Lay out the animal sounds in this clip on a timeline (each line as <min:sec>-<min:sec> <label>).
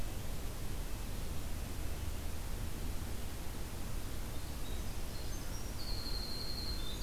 0:04.6-0:07.0 Winter Wren (Troglodytes hiemalis)